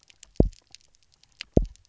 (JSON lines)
{"label": "biophony, double pulse", "recorder": "SoundTrap 300"}